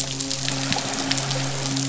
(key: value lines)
label: biophony, midshipman
recorder: SoundTrap 500

label: biophony
recorder: SoundTrap 500